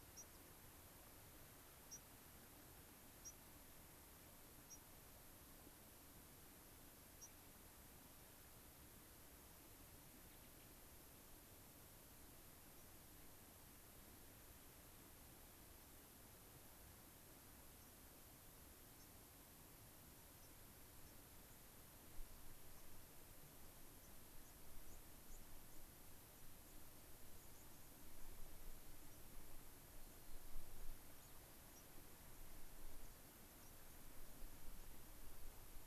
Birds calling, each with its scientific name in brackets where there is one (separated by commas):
Gray-crowned Rosy-Finch (Leucosticte tephrocotis), White-crowned Sparrow (Zonotrichia leucophrys)